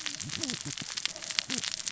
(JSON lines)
{"label": "biophony, cascading saw", "recorder": "SoundTrap 600 or HydroMoth"}